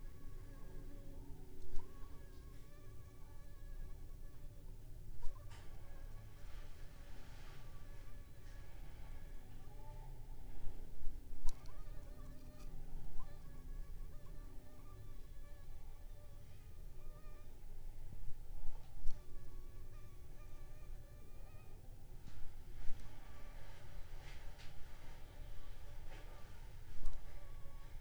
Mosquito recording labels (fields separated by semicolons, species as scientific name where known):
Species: Anopheles funestus s.s.; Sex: female; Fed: unfed; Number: one; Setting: cup